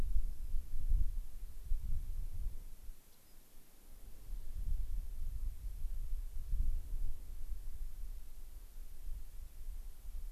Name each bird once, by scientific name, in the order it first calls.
Salpinctes obsoletus